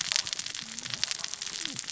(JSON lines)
{"label": "biophony, cascading saw", "recorder": "SoundTrap 600 or HydroMoth"}